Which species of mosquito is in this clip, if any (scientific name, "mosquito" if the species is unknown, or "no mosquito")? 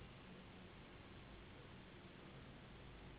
Anopheles gambiae s.s.